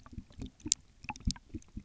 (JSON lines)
{"label": "geophony, waves", "recorder": "SoundTrap 300"}